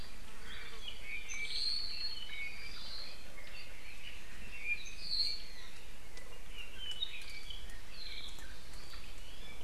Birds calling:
Omao (Myadestes obscurus), Apapane (Himatione sanguinea)

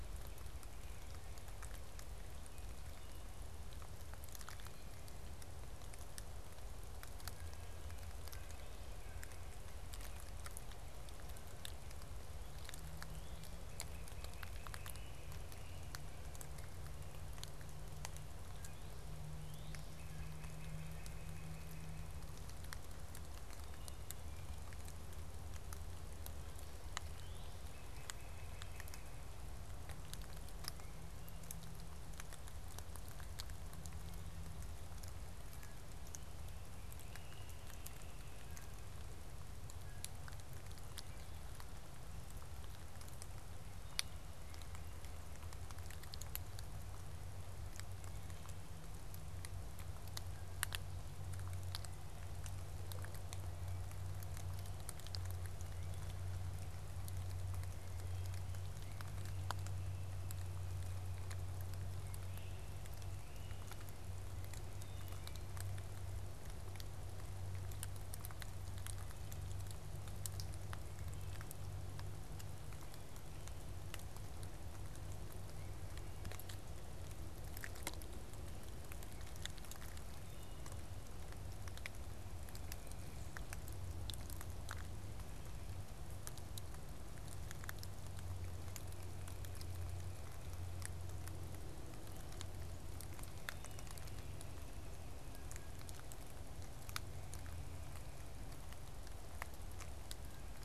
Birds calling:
Great Crested Flycatcher (Myiarchus crinitus), Northern Cardinal (Cardinalis cardinalis), Wood Thrush (Hylocichla mustelina)

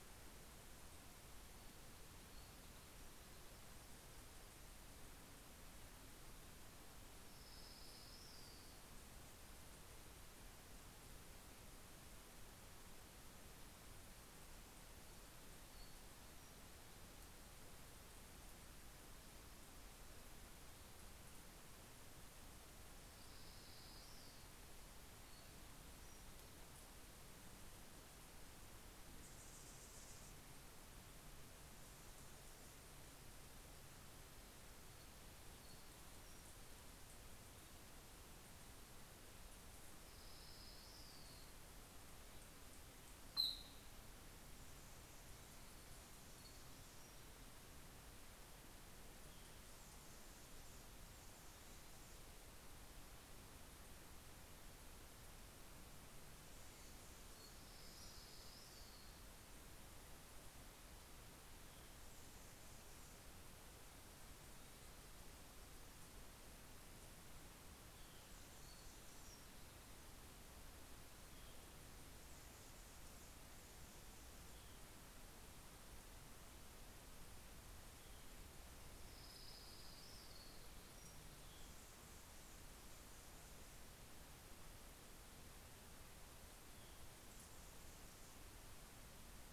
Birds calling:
Anna's Hummingbird (Calypte anna), Townsend's Warbler (Setophaga townsendi), Orange-crowned Warbler (Leiothlypis celata)

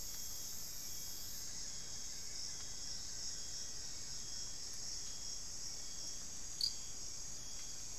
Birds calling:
Hauxwell's Thrush (Turdus hauxwelli), Buff-throated Woodcreeper (Xiphorhynchus guttatus)

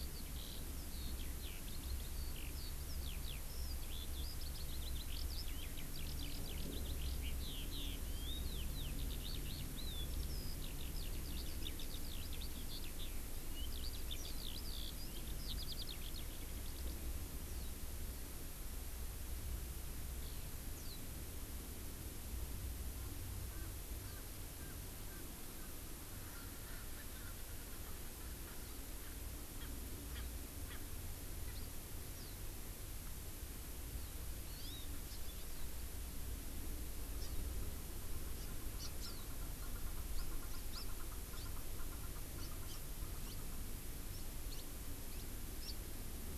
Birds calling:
Warbling White-eye (Zosterops japonicus), Erckel's Francolin (Pternistis erckelii), Hawaii Amakihi (Chlorodrepanis virens), Eurasian Skylark (Alauda arvensis)

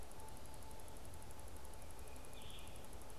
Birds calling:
Red-eyed Vireo (Vireo olivaceus)

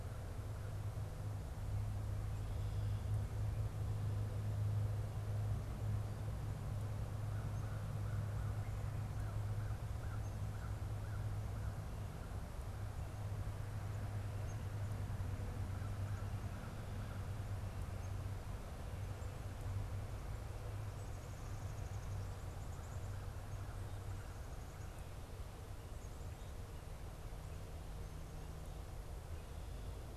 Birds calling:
Black-capped Chickadee (Poecile atricapillus), American Crow (Corvus brachyrhynchos)

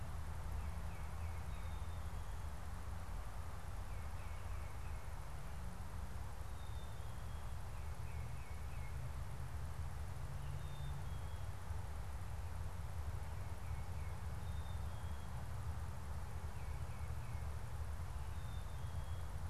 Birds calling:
Tufted Titmouse (Baeolophus bicolor), Black-capped Chickadee (Poecile atricapillus)

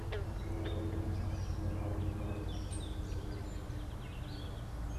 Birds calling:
unidentified bird, Gray Catbird (Dumetella carolinensis), Song Sparrow (Melospiza melodia)

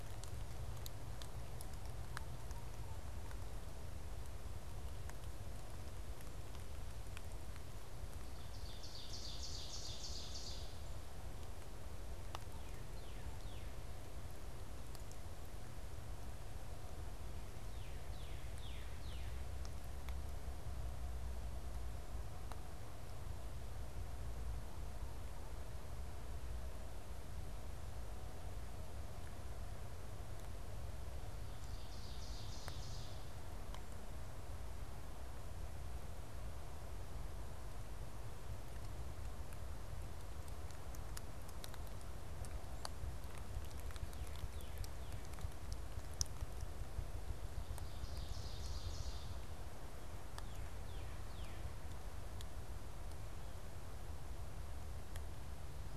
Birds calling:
Ovenbird (Seiurus aurocapilla), Northern Cardinal (Cardinalis cardinalis)

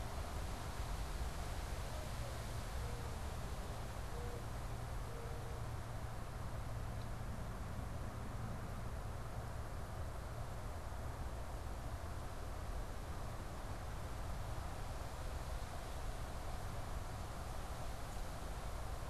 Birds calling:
Mourning Dove (Zenaida macroura)

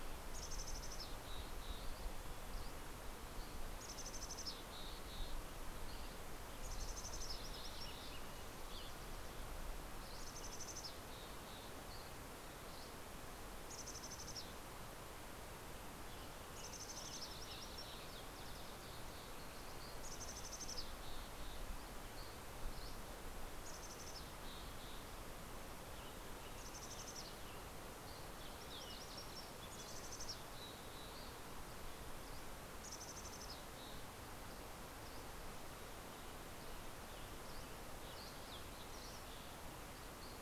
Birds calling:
Dusky Flycatcher (Empidonax oberholseri), Fox Sparrow (Passerella iliaca), Western Tanager (Piranga ludoviciana), Mountain Chickadee (Poecile gambeli)

